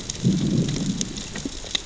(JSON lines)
{"label": "biophony, growl", "recorder": "SoundTrap 600 or HydroMoth"}